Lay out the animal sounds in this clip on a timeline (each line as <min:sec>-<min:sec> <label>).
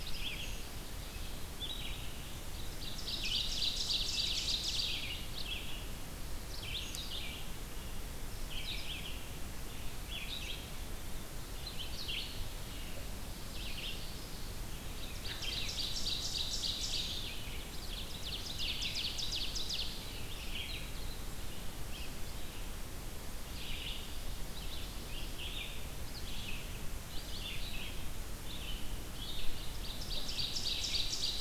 0:00.0-0:31.4 Red-eyed Vireo (Vireo olivaceus)
0:02.6-0:05.2 Ovenbird (Seiurus aurocapilla)
0:13.1-0:14.8 Ovenbird (Seiurus aurocapilla)
0:15.0-0:17.3 Ovenbird (Seiurus aurocapilla)
0:17.6-0:20.0 Ovenbird (Seiurus aurocapilla)
0:29.6-0:31.4 Ovenbird (Seiurus aurocapilla)